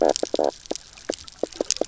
{"label": "biophony, knock croak", "recorder": "SoundTrap 300"}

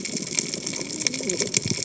{"label": "biophony, cascading saw", "recorder": "HydroMoth"}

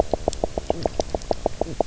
{"label": "biophony, knock croak", "recorder": "SoundTrap 300"}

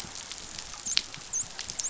{"label": "biophony, dolphin", "recorder": "SoundTrap 500"}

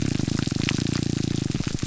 {"label": "biophony", "recorder": "SoundTrap 300"}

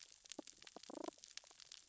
{"label": "biophony, damselfish", "recorder": "SoundTrap 600 or HydroMoth"}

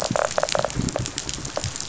{"label": "biophony, rattle response", "recorder": "SoundTrap 500"}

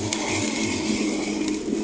{"label": "anthrophony, boat engine", "recorder": "HydroMoth"}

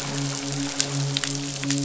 {"label": "biophony, midshipman", "recorder": "SoundTrap 500"}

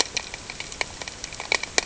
{"label": "ambient", "recorder": "HydroMoth"}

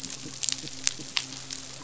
{"label": "biophony", "recorder": "SoundTrap 500"}
{"label": "biophony, midshipman", "recorder": "SoundTrap 500"}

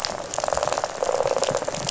{"label": "biophony, rattle", "recorder": "SoundTrap 500"}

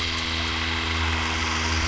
{"label": "anthrophony, boat engine", "recorder": "SoundTrap 300"}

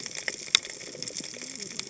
{"label": "biophony, cascading saw", "recorder": "HydroMoth"}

